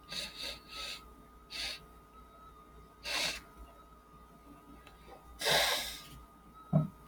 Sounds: Sniff